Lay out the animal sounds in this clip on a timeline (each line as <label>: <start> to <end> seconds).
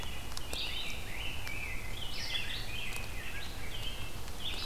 Red-eyed Vireo (Vireo olivaceus): 0.0 to 4.7 seconds
Rose-breasted Grosbeak (Pheucticus ludovicianus): 1.0 to 3.0 seconds
Red-breasted Nuthatch (Sitta canadensis): 3.0 to 4.7 seconds